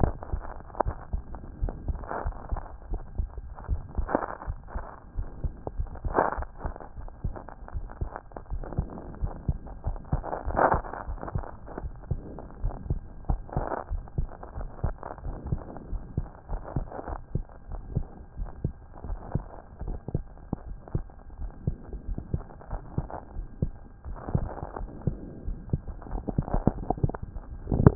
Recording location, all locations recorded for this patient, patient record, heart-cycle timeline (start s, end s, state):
aortic valve (AV)
aortic valve (AV)+pulmonary valve (PV)+tricuspid valve (TV)+mitral valve (MV)
#Age: Child
#Sex: Male
#Height: 126.0 cm
#Weight: 20.6 kg
#Pregnancy status: False
#Murmur: Unknown
#Murmur locations: nan
#Most audible location: nan
#Systolic murmur timing: nan
#Systolic murmur shape: nan
#Systolic murmur grading: nan
#Systolic murmur pitch: nan
#Systolic murmur quality: nan
#Diastolic murmur timing: nan
#Diastolic murmur shape: nan
#Diastolic murmur grading: nan
#Diastolic murmur pitch: nan
#Diastolic murmur quality: nan
#Outcome: Normal
#Campaign: 2014 screening campaign
0.00	13.77	unannotated
13.77	13.90	diastole
13.90	14.02	S1
14.02	14.18	systole
14.18	14.28	S2
14.28	14.58	diastole
14.58	14.70	S1
14.70	14.82	systole
14.82	14.94	S2
14.94	15.24	diastole
15.24	15.36	S1
15.36	15.48	systole
15.48	15.60	S2
15.60	15.90	diastole
15.90	16.02	S1
16.02	16.16	systole
16.16	16.26	S2
16.26	16.50	diastole
16.50	16.62	S1
16.62	16.76	systole
16.76	16.86	S2
16.86	17.08	diastole
17.08	17.20	S1
17.20	17.34	systole
17.34	17.44	S2
17.44	17.70	diastole
17.70	17.82	S1
17.82	17.94	systole
17.94	18.06	S2
18.06	18.38	diastole
18.38	18.50	S1
18.50	18.62	systole
18.62	18.74	S2
18.74	19.06	diastole
19.06	19.18	S1
19.18	19.34	systole
19.34	19.44	S2
19.44	19.84	diastole
19.84	19.98	S1
19.98	20.14	systole
20.14	20.24	S2
20.24	20.68	diastole
20.68	20.78	S1
20.78	20.94	systole
20.94	21.04	S2
21.04	21.40	diastole
21.40	27.95	unannotated